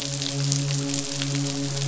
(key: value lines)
label: biophony, midshipman
recorder: SoundTrap 500